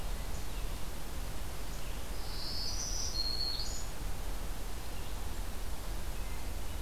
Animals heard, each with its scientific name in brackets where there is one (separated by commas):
Red-eyed Vireo (Vireo olivaceus), Black-throated Green Warbler (Setophaga virens)